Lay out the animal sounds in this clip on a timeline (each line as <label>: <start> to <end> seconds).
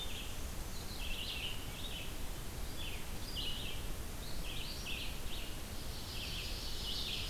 Black-and-white Warbler (Mniotilta varia): 0.0 to 0.7 seconds
Red-eyed Vireo (Vireo olivaceus): 0.6 to 7.3 seconds
Ovenbird (Seiurus aurocapilla): 5.6 to 7.3 seconds